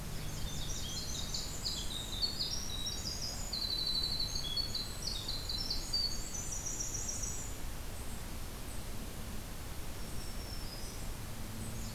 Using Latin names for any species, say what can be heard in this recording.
Setophaga fusca, Troglodytes hiemalis, Setophaga virens